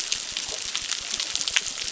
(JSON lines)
{"label": "biophony, crackle", "recorder": "SoundTrap 600"}